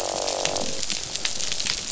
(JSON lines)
{"label": "biophony, croak", "recorder": "SoundTrap 500"}